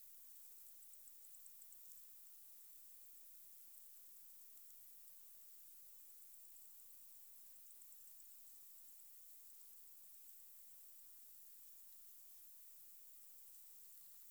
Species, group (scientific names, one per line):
Decticus albifrons
Orthoptera